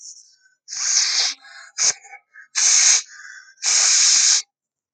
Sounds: Sniff